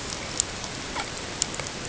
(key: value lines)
label: ambient
recorder: HydroMoth